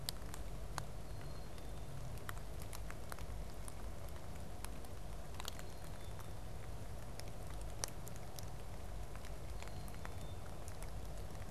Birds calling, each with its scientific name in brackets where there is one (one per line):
Black-capped Chickadee (Poecile atricapillus)